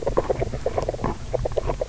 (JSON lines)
{"label": "biophony, grazing", "recorder": "SoundTrap 300"}